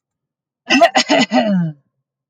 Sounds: Throat clearing